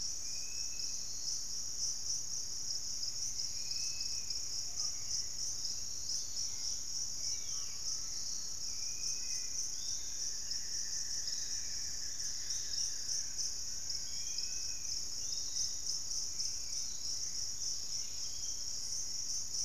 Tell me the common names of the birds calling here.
Dusky-capped Flycatcher, Russet-backed Oropendola, Hauxwell's Thrush, Dusky-capped Greenlet, Band-tailed Manakin, Piratic Flycatcher, Buff-throated Woodcreeper, Fasciated Antshrike